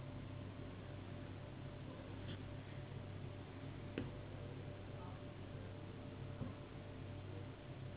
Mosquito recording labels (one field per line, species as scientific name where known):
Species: Anopheles gambiae s.s.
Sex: female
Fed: unfed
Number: one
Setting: insect culture